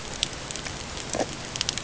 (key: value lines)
label: ambient
recorder: HydroMoth